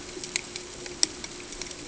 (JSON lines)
{"label": "ambient", "recorder": "HydroMoth"}